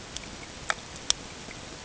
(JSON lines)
{"label": "ambient", "recorder": "HydroMoth"}